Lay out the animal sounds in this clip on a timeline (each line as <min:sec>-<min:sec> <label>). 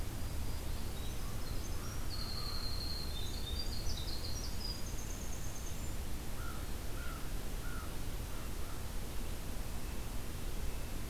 0:00.0-0:01.0 Black-throated Green Warbler (Setophaga virens)
0:00.6-0:06.0 Winter Wren (Troglodytes hiemalis)
0:01.1-0:02.8 American Crow (Corvus brachyrhynchos)
0:06.3-0:07.9 American Crow (Corvus brachyrhynchos)
0:08.2-0:08.9 American Crow (Corvus brachyrhynchos)
0:09.5-0:11.1 Red-breasted Nuthatch (Sitta canadensis)